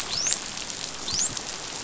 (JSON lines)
{"label": "biophony, dolphin", "recorder": "SoundTrap 500"}